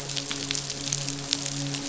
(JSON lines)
{"label": "biophony, midshipman", "recorder": "SoundTrap 500"}